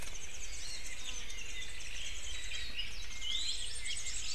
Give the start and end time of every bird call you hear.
[0.00, 4.34] Warbling White-eye (Zosterops japonicus)
[1.20, 3.00] Apapane (Himatione sanguinea)
[3.20, 4.34] Hawaii Amakihi (Chlorodrepanis virens)

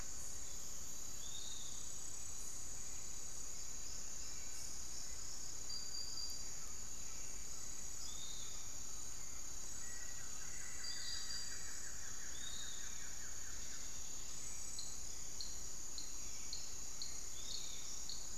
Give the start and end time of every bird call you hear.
[0.00, 0.67] Long-winged Antwren (Myrmotherula longipennis)
[0.00, 1.97] Piratic Flycatcher (Legatus leucophaius)
[2.37, 5.07] unidentified bird
[7.97, 18.38] Piratic Flycatcher (Legatus leucophaius)
[9.47, 14.27] Buff-throated Woodcreeper (Xiphorhynchus guttatus)
[9.67, 12.27] Black-faced Antthrush (Formicarius analis)
[12.77, 18.38] Hauxwell's Thrush (Turdus hauxwelli)
[14.67, 18.38] Long-winged Antwren (Myrmotherula longipennis)

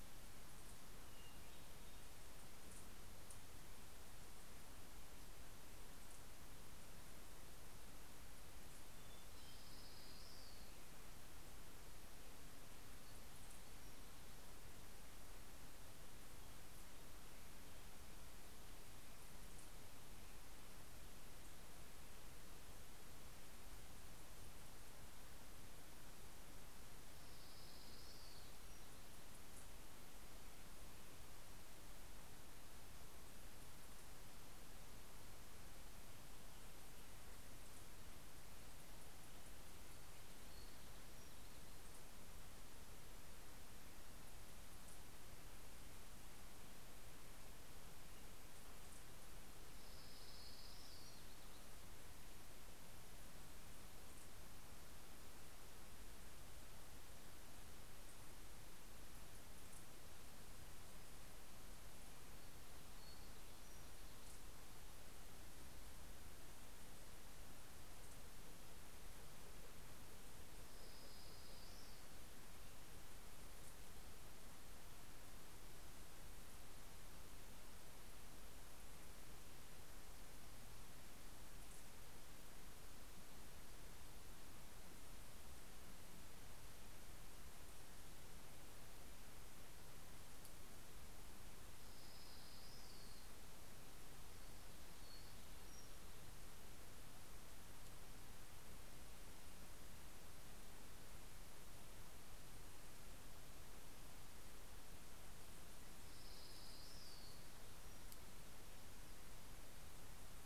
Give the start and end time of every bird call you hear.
[0.79, 2.39] Hermit Thrush (Catharus guttatus)
[8.49, 10.29] Hermit Thrush (Catharus guttatus)
[9.19, 11.19] Orange-crowned Warbler (Leiothlypis celata)
[26.39, 29.49] Orange-crowned Warbler (Leiothlypis celata)
[49.09, 52.19] Orange-crowned Warbler (Leiothlypis celata)
[62.59, 64.89] Townsend's Warbler (Setophaga townsendi)
[70.29, 72.89] Orange-crowned Warbler (Leiothlypis celata)
[91.59, 93.79] Orange-crowned Warbler (Leiothlypis celata)
[94.39, 96.69] Townsend's Warbler (Setophaga townsendi)
[104.89, 108.49] Orange-crowned Warbler (Leiothlypis celata)

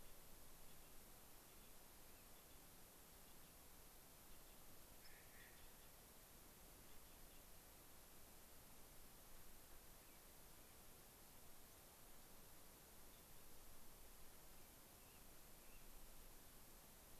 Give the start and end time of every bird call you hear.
[4.93, 5.13] unidentified bird
[4.93, 5.63] Clark's Nutcracker (Nucifraga columbiana)
[9.93, 10.83] American Robin (Turdus migratorius)
[14.53, 16.03] American Robin (Turdus migratorius)

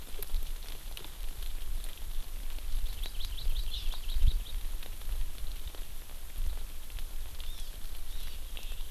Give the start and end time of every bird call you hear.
[2.84, 4.54] Hawaii Amakihi (Chlorodrepanis virens)
[7.44, 7.74] Hawaii Amakihi (Chlorodrepanis virens)
[8.14, 8.44] Hawaii Amakihi (Chlorodrepanis virens)

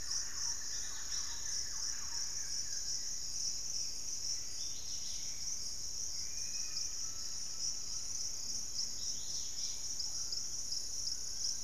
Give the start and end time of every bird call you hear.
[0.00, 2.63] Thrush-like Wren (Campylorhynchus turdinus)
[0.00, 3.03] Hauxwell's Thrush (Turdus hauxwelli)
[0.00, 3.13] Buff-throated Woodcreeper (Xiphorhynchus guttatus)
[0.00, 11.63] Dusky-capped Greenlet (Pachysylvia hypoxantha)
[6.13, 6.93] Dusky-capped Flycatcher (Myiarchus tuberculifer)
[6.43, 8.53] Pygmy Antwren (Myrmotherula brachyura)
[6.63, 8.13] Undulated Tinamou (Crypturellus undulatus)
[10.83, 11.63] Fasciated Antshrike (Cymbilaimus lineatus)
[10.93, 11.63] Hauxwell's Thrush (Turdus hauxwelli)

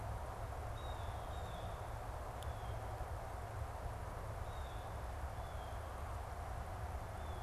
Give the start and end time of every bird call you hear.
[0.00, 4.82] Blue Jay (Cyanocitta cristata)
[5.22, 7.42] Blue Jay (Cyanocitta cristata)

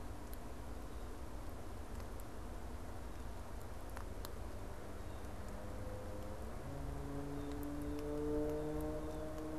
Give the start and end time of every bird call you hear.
[7.24, 9.44] Blue Jay (Cyanocitta cristata)

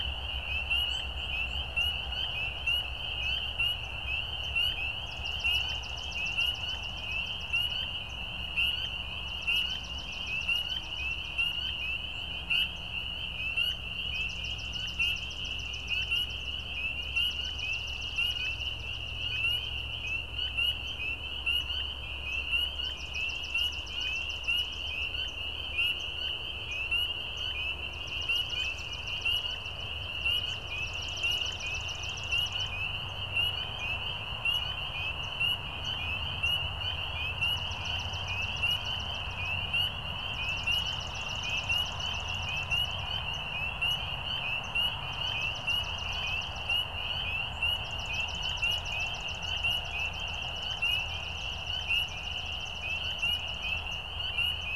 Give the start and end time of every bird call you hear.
[0.85, 1.15] Swamp Sparrow (Melospiza georgiana)
[1.65, 2.05] Swamp Sparrow (Melospiza georgiana)
[2.55, 3.45] Swamp Sparrow (Melospiza georgiana)
[3.75, 3.95] Swamp Sparrow (Melospiza georgiana)
[4.35, 4.55] Swamp Sparrow (Melospiza georgiana)
[4.95, 8.25] Swamp Sparrow (Melospiza georgiana)
[8.85, 8.95] Swamp Sparrow (Melospiza georgiana)
[9.25, 11.95] Swamp Sparrow (Melospiza georgiana)
[12.65, 12.85] Swamp Sparrow (Melospiza georgiana)
[13.65, 20.15] Swamp Sparrow (Melospiza georgiana)
[20.85, 20.95] Swamp Sparrow (Melospiza georgiana)
[21.45, 21.65] Swamp Sparrow (Melospiza georgiana)
[22.15, 22.45] Swamp Sparrow (Melospiza georgiana)
[22.75, 25.35] Swamp Sparrow (Melospiza georgiana)
[25.95, 26.15] Swamp Sparrow (Melospiza georgiana)
[26.65, 26.85] Swamp Sparrow (Melospiza georgiana)
[27.35, 27.55] Swamp Sparrow (Melospiza georgiana)
[27.85, 32.75] Swamp Sparrow (Melospiza georgiana)
[28.45, 28.95] American Robin (Turdus migratorius)
[33.05, 33.15] Swamp Sparrow (Melospiza georgiana)
[33.75, 33.85] Swamp Sparrow (Melospiza georgiana)
[34.45, 34.65] Swamp Sparrow (Melospiza georgiana)
[35.15, 35.35] Swamp Sparrow (Melospiza georgiana)
[35.85, 35.95] Swamp Sparrow (Melospiza georgiana)
[36.45, 36.55] Swamp Sparrow (Melospiza georgiana)
[37.25, 39.45] Swamp Sparrow (Melospiza georgiana)
[40.05, 43.45] Swamp Sparrow (Melospiza georgiana)
[43.85, 44.05] Swamp Sparrow (Melospiza georgiana)
[44.55, 44.75] Swamp Sparrow (Melospiza georgiana)
[45.05, 46.85] Swamp Sparrow (Melospiza georgiana)
[47.65, 54.05] Swamp Sparrow (Melospiza georgiana)
[54.55, 54.75] Swamp Sparrow (Melospiza georgiana)

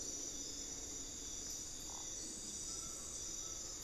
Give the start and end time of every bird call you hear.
[0.00, 3.83] Buckley's Forest-Falcon (Micrastur buckleyi)

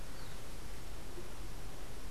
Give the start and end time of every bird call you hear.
[0.00, 2.10] unidentified bird

